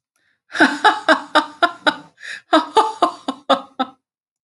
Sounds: Laughter